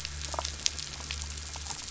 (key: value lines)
label: anthrophony, boat engine
recorder: SoundTrap 500